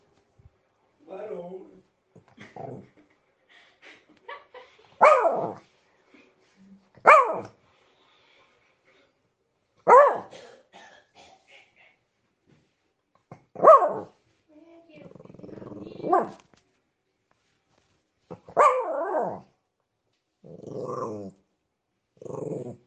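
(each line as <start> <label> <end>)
0.9 A man calls a dog's name in a teasing tone, creating a playful interaction. 2.6
2.5 A woman chuckles softly in reaction to a dog’s behavior following a man’s teasing, adding to the light-hearted atmosphere. 5.1
5.0 A dog barks intermittently with noticeable pauses, creating a rhythmic pattern indoors. 22.8
10.4 A man coughs briefly, ending with playful, exaggerated coughs. 12.6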